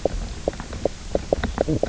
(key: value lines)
label: biophony, knock croak
recorder: SoundTrap 300